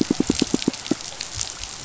{"label": "biophony, pulse", "recorder": "SoundTrap 500"}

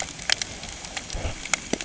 {"label": "ambient", "recorder": "HydroMoth"}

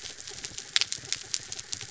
{"label": "anthrophony, mechanical", "recorder": "SoundTrap 300"}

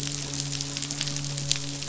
{"label": "biophony, midshipman", "recorder": "SoundTrap 500"}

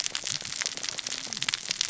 {"label": "biophony, cascading saw", "recorder": "SoundTrap 600 or HydroMoth"}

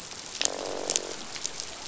{"label": "biophony, croak", "recorder": "SoundTrap 500"}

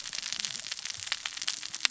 {"label": "biophony, cascading saw", "recorder": "SoundTrap 600 or HydroMoth"}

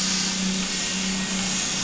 {"label": "anthrophony, boat engine", "recorder": "SoundTrap 500"}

